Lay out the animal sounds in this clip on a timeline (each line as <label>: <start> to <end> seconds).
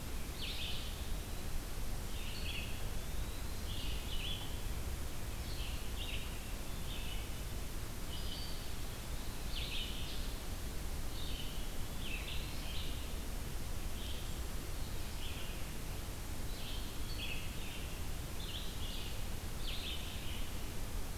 Red-eyed Vireo (Vireo olivaceus): 0.0 to 20.2 seconds
Eastern Wood-Pewee (Contopus virens): 2.1 to 3.8 seconds
Eastern Wood-Pewee (Contopus virens): 10.9 to 12.7 seconds